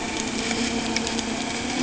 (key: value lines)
label: anthrophony, boat engine
recorder: HydroMoth